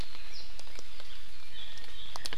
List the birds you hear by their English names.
Apapane